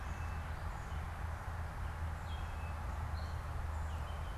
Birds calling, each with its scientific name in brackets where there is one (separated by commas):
Tufted Titmouse (Baeolophus bicolor)